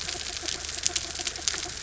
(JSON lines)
{"label": "anthrophony, mechanical", "recorder": "SoundTrap 300"}